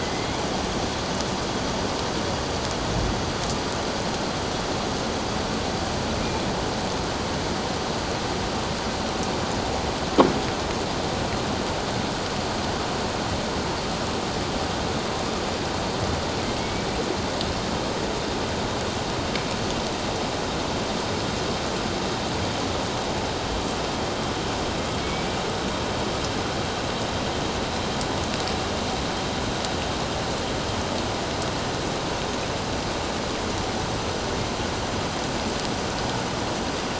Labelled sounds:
0.0	0.4	killer whale, northern resident, A clan, 1.9 to 2.3 kHz
16.6	16.9	killer whale, northern resident, A clan, 2.1 to 2.3 kHz
25.0	25.4	killer whale, northern resident, A clan, 2.2 to 2.4 kHz

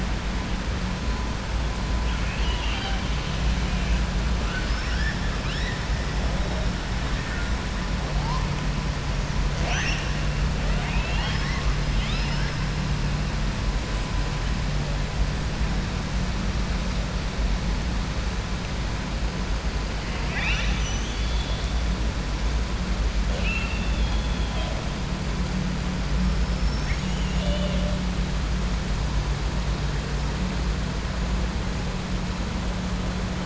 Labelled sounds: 2.0	3.0	killer whale, southern resident, 0.79 to 4.8 kHz
4.4	5.2	killer whale, southern resident, 1.2 to 5.5 kHz
9.5	10.1	killer whale, southern resident, 0.59 to 6.5 kHz
10.6	12.5	killer whale, southern resident, 0.68 to 5.7 kHz
20.0	21.6	killer whale, southern resident, 0.88 to 6.5 kHz
23.3	24.2	killer whale, southern resident, 0.52 to 4.1 kHz
26.4	27.9	killer whale, southern resident, 1.8 to 7.6 kHz

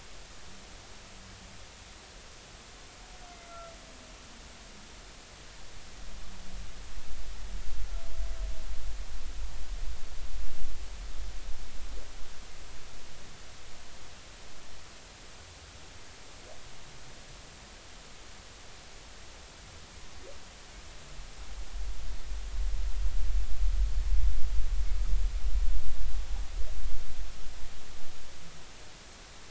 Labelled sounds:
3.3	3.7	humpback whale, 1.3 to 2.1 kHz

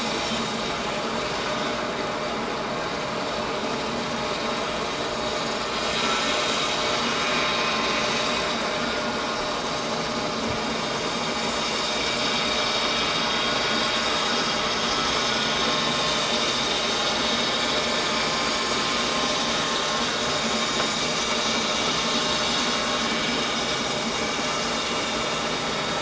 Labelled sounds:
17.6	17.8	vessel noise, 3.4 to 3.5 kHz

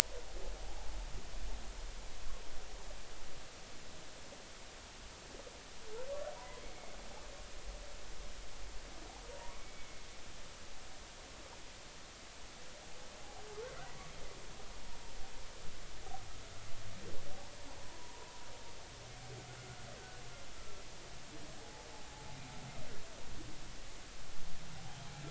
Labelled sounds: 6.4	7.0	humpback whale, 0.90 to 2.3 kHz
9.3	10.0	humpback whale, 0.90 to 2.3 kHz
17.8	18.3	humpback whale, 0.90 to 1.1 kHz
21.6	21.9	humpback whale, 0.80 to 0.90 kHz

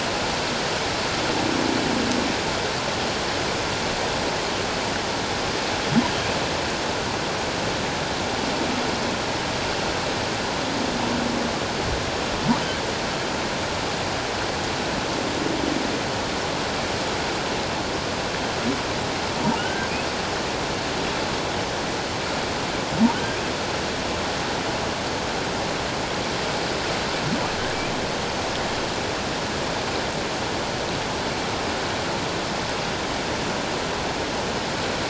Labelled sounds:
19.6	19.9	humpback whale, 1.2 to 1.6 kHz

